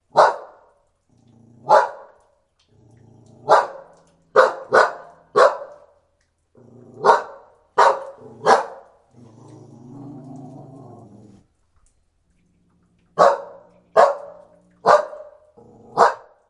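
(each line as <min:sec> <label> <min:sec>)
0:00.1 A dog barks. 0:00.4
0:01.7 A dog barks. 0:01.9
0:03.4 A dog barks. 0:03.7
0:04.3 A dog barks. 0:05.6
0:07.0 A dog barks. 0:08.7
0:09.2 A dog growls. 0:11.5
0:13.1 A dog barks. 0:14.2
0:14.8 A dog barks. 0:15.2
0:15.9 A dog barks. 0:16.2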